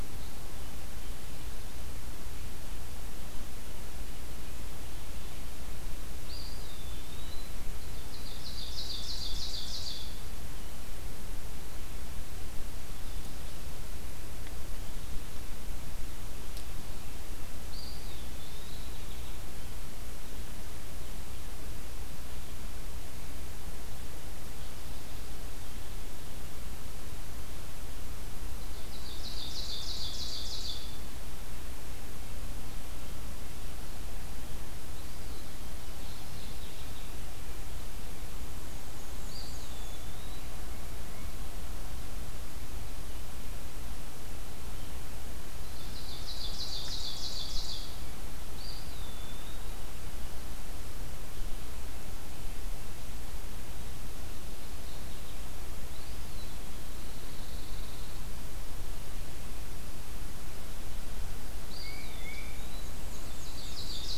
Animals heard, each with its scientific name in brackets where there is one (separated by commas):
Tufted Titmouse (Baeolophus bicolor), Mourning Warbler (Geothlypis philadelphia), Black-and-white Warbler (Mniotilta varia), Eastern Wood-Pewee (Contopus virens), Ovenbird (Seiurus aurocapilla), Pine Warbler (Setophaga pinus)